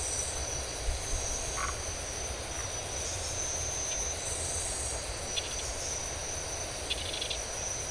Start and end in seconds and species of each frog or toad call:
1.5	1.8	Phyllomedusa distincta
5.2	5.9	Scinax rizibilis
6.8	7.5	Scinax rizibilis
Brazil, 2:15am

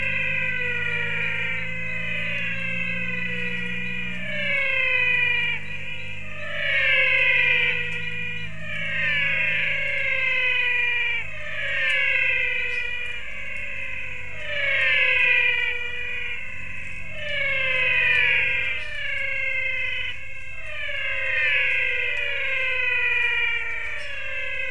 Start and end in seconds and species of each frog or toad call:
0.0	10.8	spot-legged poison frog
0.0	24.7	menwig frog
23.9	24.2	lesser tree frog
Brazil, 5:45pm

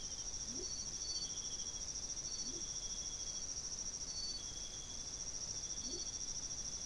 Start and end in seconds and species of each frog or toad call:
0.3	1.0	Leptodactylus latrans
2.4	2.9	Leptodactylus latrans
5.6	6.4	Leptodactylus latrans
Brazil, 4:15am

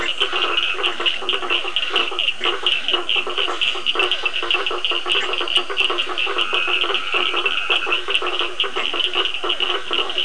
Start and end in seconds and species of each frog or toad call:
0.0	1.0	Dendropsophus nahdereri
0.0	10.2	blacksmith tree frog
0.0	10.2	Physalaemus cuvieri
0.0	10.2	Scinax perereca
0.0	10.2	Cochran's lime tree frog
6.1	8.3	Dendropsophus nahdereri
6.9	10.2	Leptodactylus latrans
Brazil, 8:30pm

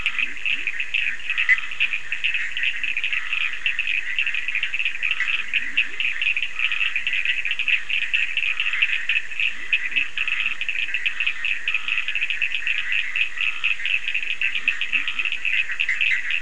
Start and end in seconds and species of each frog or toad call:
0.0	2.0	Leptodactylus latrans
0.0	16.4	Bischoff's tree frog
0.0	16.4	Scinax perereca
0.0	16.4	Cochran's lime tree frog
4.9	6.2	Leptodactylus latrans
9.5	12.1	Leptodactylus latrans
14.4	15.5	Leptodactylus latrans
Brazil, 12:00am

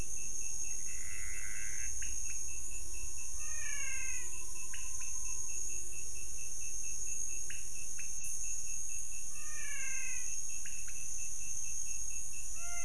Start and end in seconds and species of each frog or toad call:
0.5	1.9	Pithecopus azureus
1.9	3.3	pointedbelly frog
3.1	4.5	menwig frog
4.5	8.3	pointedbelly frog
9.1	10.6	menwig frog
Brazil, 4:00am

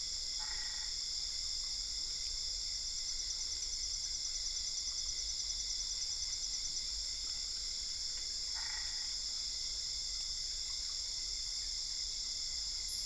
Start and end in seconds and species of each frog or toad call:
0.2	1.2	Boana albopunctata
8.5	9.3	Boana albopunctata
Brazil, 1:30am

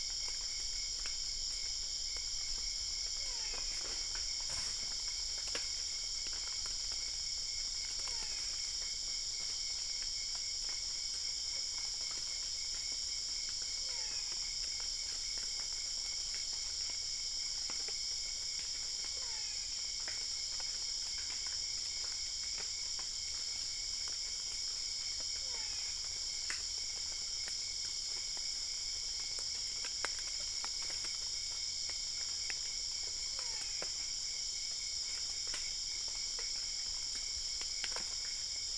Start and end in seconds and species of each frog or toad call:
3.2	3.9	brown-spotted dwarf frog
7.9	8.7	brown-spotted dwarf frog
13.8	14.5	brown-spotted dwarf frog
19.0	19.8	brown-spotted dwarf frog
25.4	26.1	brown-spotted dwarf frog
33.3	34.1	brown-spotted dwarf frog
Brazil, 2:45am

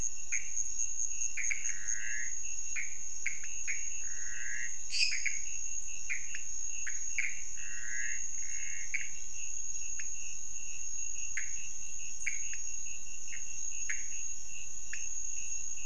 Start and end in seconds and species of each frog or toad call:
0.0	15.8	Pithecopus azureus
4.9	5.5	lesser tree frog
9.9	10.1	pointedbelly frog
12.5	12.7	pointedbelly frog
14.8	15.1	pointedbelly frog
Brazil, 1:30am

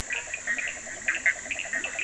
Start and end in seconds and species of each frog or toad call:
0.0	2.0	Bischoff's tree frog
0.0	2.0	yellow cururu toad
0.0	2.0	Cochran's lime tree frog
0.3	2.0	Leptodactylus latrans
Brazil, 11:30pm

